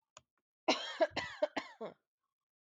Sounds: Cough